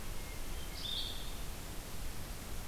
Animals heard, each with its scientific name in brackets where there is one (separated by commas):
Blue-headed Vireo (Vireo solitarius), Hermit Thrush (Catharus guttatus)